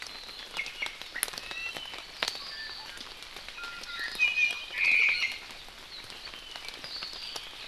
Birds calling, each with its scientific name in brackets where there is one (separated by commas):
Omao (Myadestes obscurus), Iiwi (Drepanis coccinea)